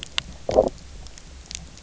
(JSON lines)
{"label": "biophony, low growl", "recorder": "SoundTrap 300"}